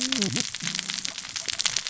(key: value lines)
label: biophony, cascading saw
recorder: SoundTrap 600 or HydroMoth